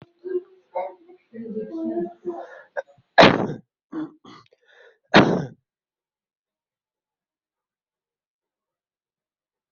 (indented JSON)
{
  "expert_labels": [
    {
      "quality": "ok",
      "cough_type": "dry",
      "dyspnea": false,
      "wheezing": false,
      "stridor": false,
      "choking": false,
      "congestion": false,
      "nothing": true,
      "diagnosis": "healthy cough",
      "severity": "pseudocough/healthy cough"
    }
  ],
  "age": 40,
  "gender": "male",
  "respiratory_condition": true,
  "fever_muscle_pain": true,
  "status": "healthy"
}